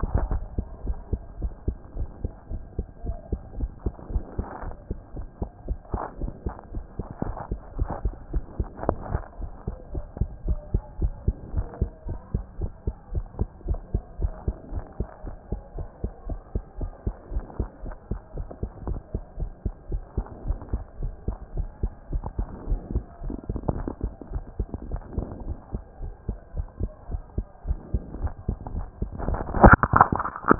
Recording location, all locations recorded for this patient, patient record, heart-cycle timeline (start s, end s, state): mitral valve (MV)
aortic valve (AV)+pulmonary valve (PV)+tricuspid valve (TV)+mitral valve (MV)
#Age: Child
#Sex: Female
#Height: 130.0 cm
#Weight: 22.9 kg
#Pregnancy status: False
#Murmur: Absent
#Murmur locations: nan
#Most audible location: nan
#Systolic murmur timing: nan
#Systolic murmur shape: nan
#Systolic murmur grading: nan
#Systolic murmur pitch: nan
#Systolic murmur quality: nan
#Diastolic murmur timing: nan
#Diastolic murmur shape: nan
#Diastolic murmur grading: nan
#Diastolic murmur pitch: nan
#Diastolic murmur quality: nan
#Outcome: Normal
#Campaign: 2014 screening campaign
0.00	0.72	unannotated
0.72	0.84	diastole
0.84	0.96	S1
0.96	1.12	systole
1.12	1.20	S2
1.20	1.40	diastole
1.40	1.52	S1
1.52	1.66	systole
1.66	1.76	S2
1.76	1.96	diastole
1.96	2.08	S1
2.08	2.22	systole
2.22	2.32	S2
2.32	2.50	diastole
2.50	2.62	S1
2.62	2.76	systole
2.76	2.86	S2
2.86	3.04	diastole
3.04	3.16	S1
3.16	3.30	systole
3.30	3.40	S2
3.40	3.58	diastole
3.58	3.70	S1
3.70	3.84	systole
3.84	3.92	S2
3.92	4.12	diastole
4.12	4.24	S1
4.24	4.38	systole
4.38	4.46	S2
4.46	4.64	diastole
4.64	4.74	S1
4.74	4.90	systole
4.90	4.98	S2
4.98	5.16	diastole
5.16	5.26	S1
5.26	5.40	systole
5.40	5.50	S2
5.50	5.68	diastole
5.68	5.78	S1
5.78	5.92	systole
5.92	6.00	S2
6.00	6.20	diastole
6.20	6.32	S1
6.32	6.44	systole
6.44	6.54	S2
6.54	6.74	diastole
6.74	6.84	S1
6.84	6.98	systole
6.98	7.06	S2
7.06	7.24	diastole
7.24	7.36	S1
7.36	7.50	systole
7.50	7.60	S2
7.60	7.78	diastole
7.78	7.90	S1
7.90	8.04	systole
8.04	8.14	S2
8.14	8.32	diastole
8.32	8.44	S1
8.44	8.58	systole
8.58	8.68	S2
8.68	8.86	diastole
8.86	8.98	S1
8.98	9.12	systole
9.12	9.22	S2
9.22	9.40	diastole
9.40	9.50	S1
9.50	9.66	systole
9.66	9.76	S2
9.76	9.94	diastole
9.94	10.04	S1
10.04	10.20	systole
10.20	10.28	S2
10.28	10.46	diastole
10.46	10.60	S1
10.60	10.72	systole
10.72	10.82	S2
10.82	11.00	diastole
11.00	11.14	S1
11.14	11.26	systole
11.26	11.36	S2
11.36	11.54	diastole
11.54	11.66	S1
11.66	11.80	systole
11.80	11.90	S2
11.90	12.08	diastole
12.08	12.20	S1
12.20	12.34	systole
12.34	12.44	S2
12.44	12.60	diastole
12.60	12.70	S1
12.70	12.86	systole
12.86	12.94	S2
12.94	13.12	diastole
13.12	13.26	S1
13.26	13.38	systole
13.38	13.48	S2
13.48	13.68	diastole
13.68	13.80	S1
13.80	13.92	systole
13.92	14.02	S2
14.02	14.20	diastole
14.20	14.32	S1
14.32	14.46	systole
14.46	14.54	S2
14.54	14.72	diastole
14.72	14.84	S1
14.84	14.98	systole
14.98	15.08	S2
15.08	15.24	diastole
15.24	15.36	S1
15.36	15.50	systole
15.50	15.60	S2
15.60	15.76	diastole
15.76	15.88	S1
15.88	16.02	systole
16.02	16.12	S2
16.12	16.28	diastole
16.28	16.40	S1
16.40	16.54	systole
16.54	16.62	S2
16.62	16.80	diastole
16.80	16.92	S1
16.92	17.06	systole
17.06	17.14	S2
17.14	17.32	diastole
17.32	17.44	S1
17.44	17.58	systole
17.58	17.68	S2
17.68	17.84	diastole
17.84	17.96	S1
17.96	18.10	systole
18.10	18.20	S2
18.20	18.36	diastole
18.36	18.48	S1
18.48	18.62	systole
18.62	18.70	S2
18.70	18.86	diastole
18.86	19.00	S1
19.00	19.14	systole
19.14	19.22	S2
19.22	19.40	diastole
19.40	19.50	S1
19.50	19.64	systole
19.64	19.74	S2
19.74	19.90	diastole
19.90	20.02	S1
20.02	20.16	systole
20.16	20.26	S2
20.26	20.46	diastole
20.46	20.58	S1
20.58	20.72	systole
20.72	20.82	S2
20.82	21.00	diastole
21.00	21.14	S1
21.14	21.26	systole
21.26	21.36	S2
21.36	21.56	diastole
21.56	21.68	S1
21.68	21.82	systole
21.82	21.92	S2
21.92	22.12	diastole
22.12	22.24	S1
22.24	22.38	systole
22.38	22.46	S2
22.46	22.68	diastole
22.68	22.80	S1
22.80	22.92	systole
22.92	23.04	S2
23.04	23.24	diastole
23.24	23.36	S1
23.36	23.48	systole
23.48	23.60	S2
23.60	23.74	diastole
23.74	23.88	S1
23.88	24.02	systole
24.02	24.12	S2
24.12	24.32	diastole
24.32	24.44	S1
24.44	24.58	systole
24.58	24.68	S2
24.68	24.90	diastole
24.90	25.02	S1
25.02	25.16	systole
25.16	25.26	S2
25.26	25.46	diastole
25.46	25.58	S1
25.58	25.72	systole
25.72	25.82	S2
25.82	26.02	diastole
26.02	26.12	S1
26.12	26.28	systole
26.28	26.38	S2
26.38	26.56	diastole
26.56	26.68	S1
26.68	26.80	systole
26.80	26.90	S2
26.90	27.10	diastole
27.10	27.22	S1
27.22	27.36	systole
27.36	27.46	S2
27.46	27.66	diastole
27.66	27.78	S1
27.78	27.92	systole
27.92	28.02	S2
28.02	28.22	diastole
28.22	28.32	S1
28.32	28.48	systole
28.48	28.58	S2
28.58	28.74	diastole
28.74	28.86	S1
28.86	29.00	systole
29.00	29.10	S2
29.10	29.26	diastole
29.26	30.59	unannotated